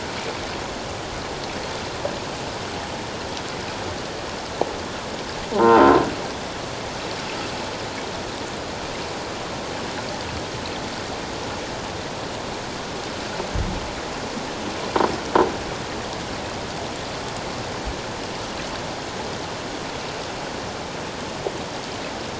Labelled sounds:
5.5	5.9	croaking sound likely from a nearby submerged object, 0.78 to 1.6 kHz

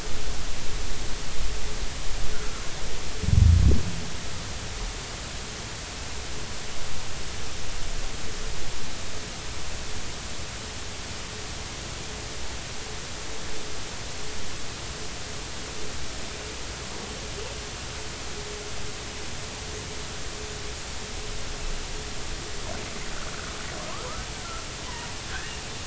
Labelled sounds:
2.3	2.6	humpback whale, 1.2 to 1.6 kHz
24.8	25.5	humpback whale, 0.86 to 1.9 kHz

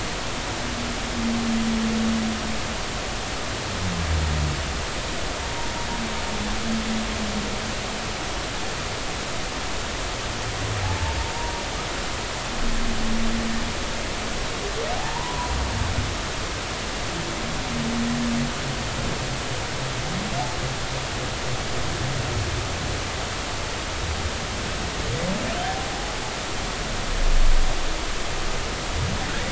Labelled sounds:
11.4	11.6	humpback whale, 0.90 to 0.99 kHz
14.9	15.5	humpback whale, 0.80 to 1.1 kHz
25.6	26.2	humpback whale, 0.80 to 0.86 kHz

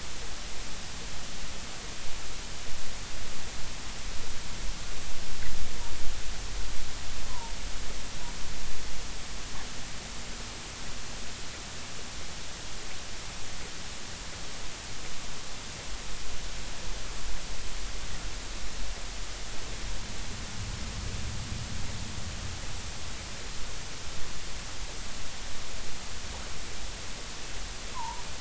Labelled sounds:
7.3	7.5	humpback whale, 0.86 to 1.1 kHz
27.9	28.3	humpback whale, 0.83 to 1.1 kHz

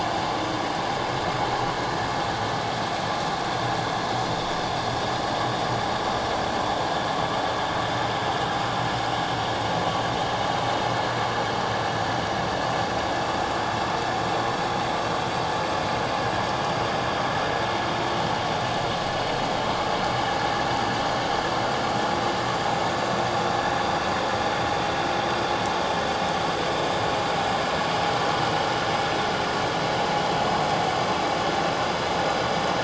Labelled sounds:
28.4	28.7	vessel noise, 2.9 to 3.0 kHz

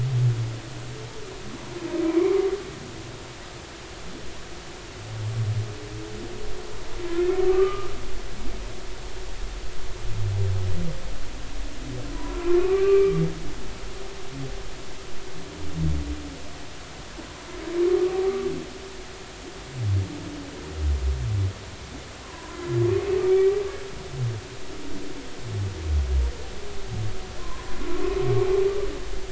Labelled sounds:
2.0	2.3	humpback whale, 2.1 to 2.4 kHz
7.5	7.9	humpback whale, 1.1 to 1.3 kHz
12.1	13.2	humpback whale, 0.93 to 2.8 kHz
18.2	18.5	humpback whale, 1.1 to 1.3 kHz
22.2	23.5	humpback whale, 0.93 to 2.4 kHz
27.4	27.8	humpback whale, 0.96 to 1.1 kHz

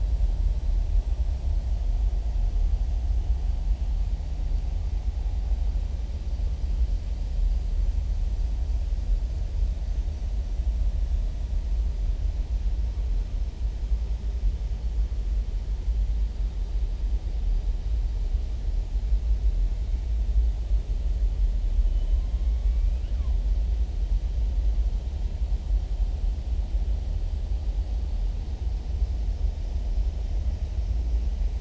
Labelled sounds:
22.2	23.3	killer whale, southern resident, 0.99 to 3.0 kHz

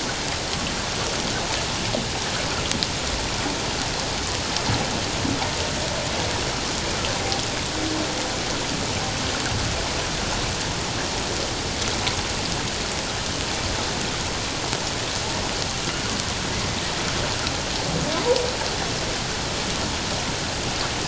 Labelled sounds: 18.1	18.4	humpback whale, 0.88 to 1.1 kHz

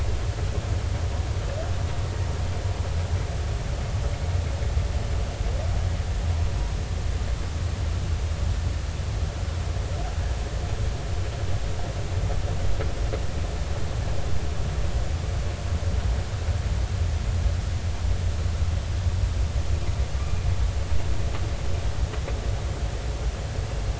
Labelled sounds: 20.2	20.5	humpback whale, 2.3 to 2.5 kHz

